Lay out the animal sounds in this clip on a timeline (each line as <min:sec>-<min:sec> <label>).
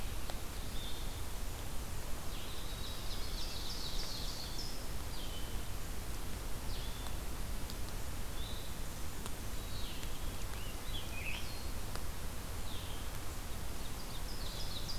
0:00.6-0:15.0 Blue-headed Vireo (Vireo solitarius)
0:02.2-0:04.7 Ovenbird (Seiurus aurocapilla)
0:10.5-0:11.6 Scarlet Tanager (Piranga olivacea)
0:13.9-0:15.0 Ovenbird (Seiurus aurocapilla)